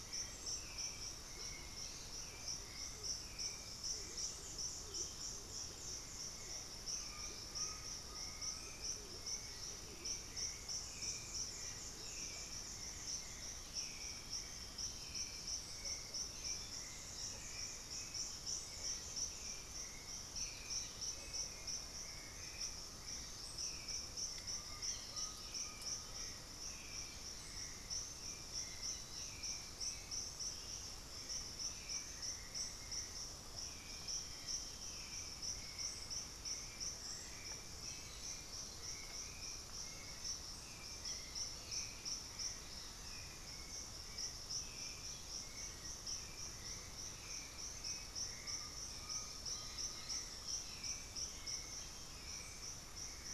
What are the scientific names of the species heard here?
Turdus hauxwelli, Psarocolius angustifrons, Anhima cornuta, Crypturellus undulatus, Dendroma erythroptera, unidentified bird